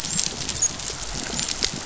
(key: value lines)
label: biophony, dolphin
recorder: SoundTrap 500